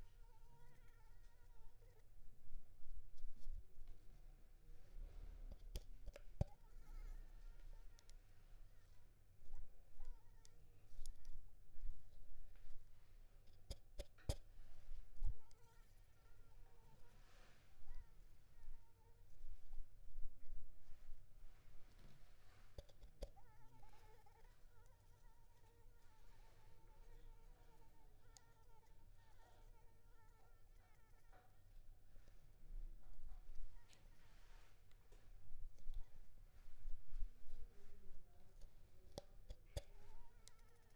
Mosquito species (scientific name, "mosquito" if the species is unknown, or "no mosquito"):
Anopheles arabiensis